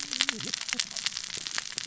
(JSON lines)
{"label": "biophony, cascading saw", "recorder": "SoundTrap 600 or HydroMoth"}